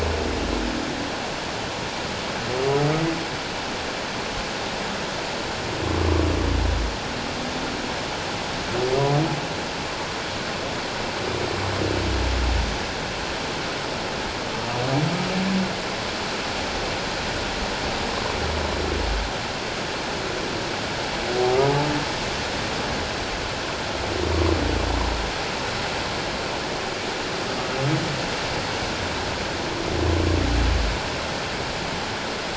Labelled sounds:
6.0	6.3	humpback whale, 0.97 to 1.2 kHz

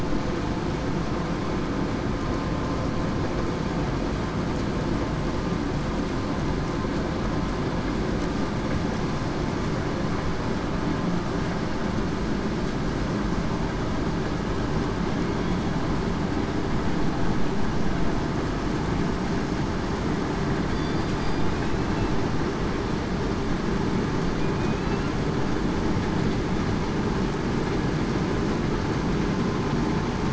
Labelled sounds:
20.7	21.1	killer whale, southern resident, 4.6 to 4.8 kHz
24.4	25.1	killer whale, southern resident, 2.3 to 2.8 kHz

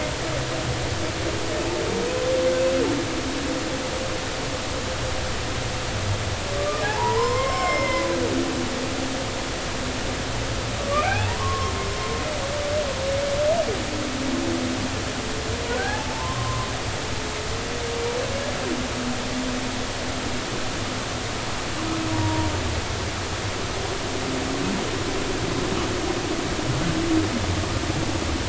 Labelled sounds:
6.6	8.1	humpback whale, 0.80 to 5.4 kHz
10.9	11.7	humpback whale, 0.80 to 2.7 kHz
15.7	16.7	humpback whale, 0.80 to 1.8 kHz
22.1	22.5	humpback whale, 0.90 to 0.99 kHz

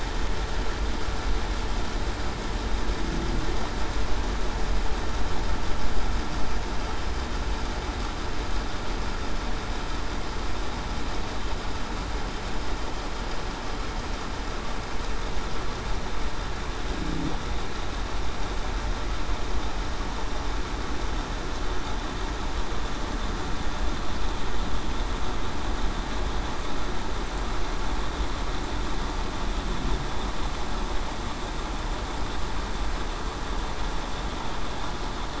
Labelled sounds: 17.0	17.3	humpback whale, 0.23 to 0.35 kHz

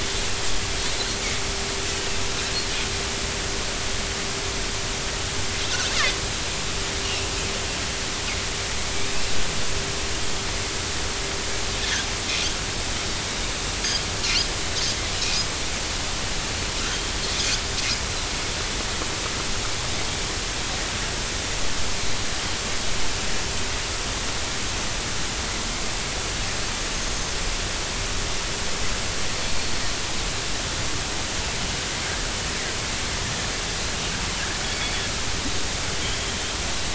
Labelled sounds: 7.0	7.3	Pacific white-sided dolphin, 2.6 to 2.9 kHz
27.0	27.3	Pacific white-sided dolphin, 6.2 to 6.6 kHz

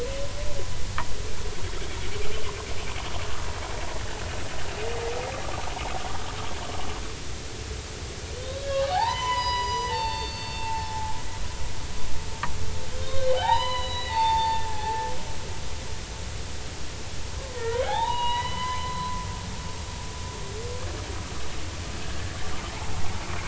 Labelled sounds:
8.4	11.2	humpback whale, 0.80 to 7.0 kHz
13.0	15.0	humpback whale, 0.80 to 4.5 kHz
15.7	15.9	humpback whale, 1.6 to 1.8 kHz
17.4	19.2	humpback whale, 0.80 to 4.1 kHz

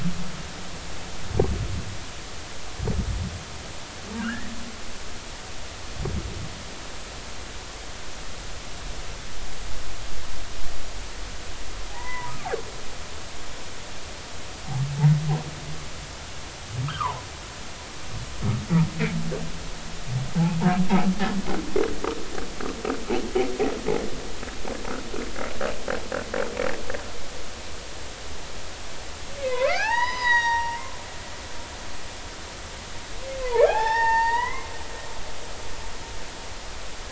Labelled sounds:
4.2	4.5	humpback whale, 1.2 to 2.0 kHz
11.9	12.3	humpback whale, 0.80 to 2.1 kHz
16.9	17.2	humpback whale, 0.83 to 1.7 kHz
29.4	30.8	humpback whale, 0.80 to 6.9 kHz
33.4	34.7	humpback whale, 0.80 to 5.6 kHz

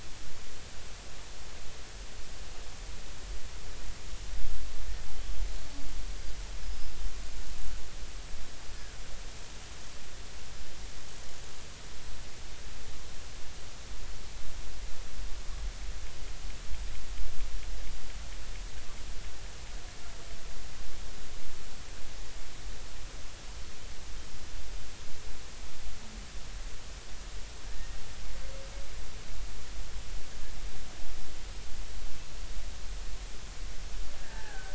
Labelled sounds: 6.6	6.9	killer whale, Bigg's (transient), 5.0 to 5.2 kHz
27.6	27.9	killer whale, Bigg's (transient), 1.6 to 1.9 kHz
34.2	34.7	killer whale, Bigg's (transient), 0.80 to 1.9 kHz

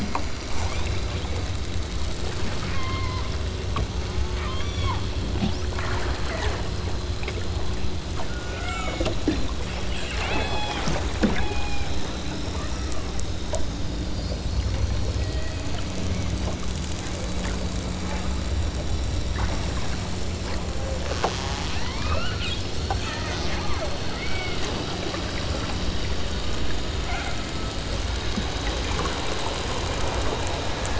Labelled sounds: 0.5	1.0	killer whale, southern Alaska resident, 0.39 to 3.0 kHz
2.7	3.3	killer whale, southern Alaska resident, 0.56 to 3.6 kHz
4.3	5.0	killer whale, southern Alaska resident, 0.60 to 8.0 kHz
6.2	6.7	killer whale, southern Alaska resident, 1.0 to 2.9 kHz
8.5	9.2	killer whale, southern Alaska resident, 0.26 to 5.7 kHz
10.3	10.9	killer whale, southern Alaska resident, 0.47 to 8.0 kHz
11.3	12.0	killer whale, southern Alaska resident, 0.34 to 3.0 kHz
12.4	13.2	killer whale, southern Alaska resident, 0.86 to 3.3 kHz
15.1	15.9	killer whale, southern Alaska resident, 1.4 to 3.8 kHz
21.9	22.4	killer whale, southern Alaska resident, 0.90 to 8.0 kHz
23.6	24.8	killer whale, southern Alaska resident, 0.43 to 2.7 kHz
27.0	27.5	killer whale, southern Alaska resident, 0.43 to 3.0 kHz

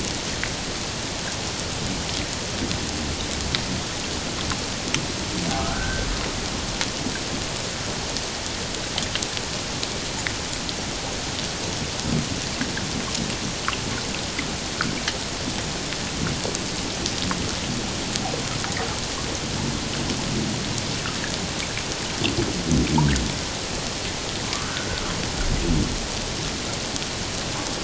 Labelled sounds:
5.6	6.1	humpback whale, 1.2 to 1.6 kHz
24.5	24.9	humpback whale, 1.1 to 1.6 kHz

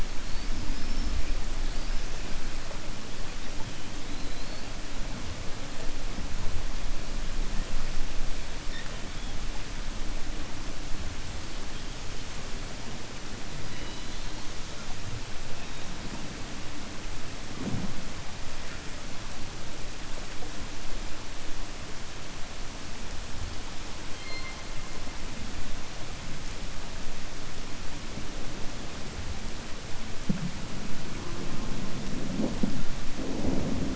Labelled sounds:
0.6	1.1	killer whale, 4.9 to 5.4 kHz
4.1	4.7	killer whale, 3.9 to 4.7 kHz

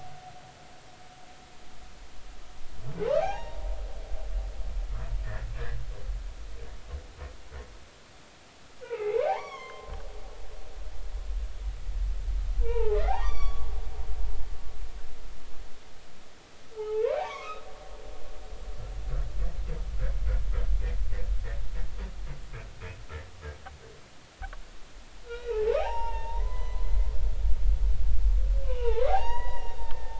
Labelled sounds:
3.2	3.6	humpback whale, 0.80 to 6.6 kHz
8.8	9.9	humpback whale, 0.80 to 6.6 kHz
12.6	13.7	humpback whale, 0.80 to 7.0 kHz
16.7	17.6	humpback whale, 0.80 to 2.8 kHz
25.2	27.1	humpback whale, 0.80 to 5.8 kHz
28.6	30.1	humpback whale, 0.80 to 6.8 kHz

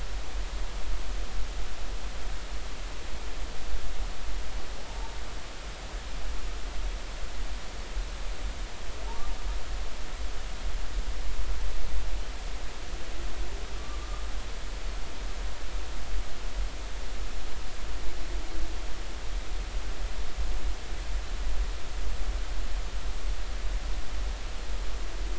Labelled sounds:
4.9	5.1	humpback whale, 0.83 to 0.96 kHz
13.7	14.3	humpback whale, 1.1 to 1.3 kHz

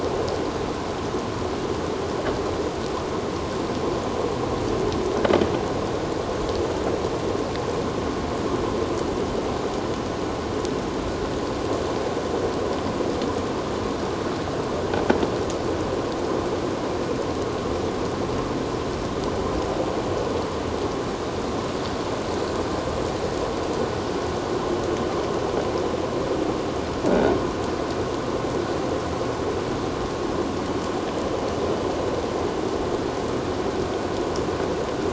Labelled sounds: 27.1	27.3	croaking sound likely from a nearby submerged object, 1.4 to 1.6 kHz

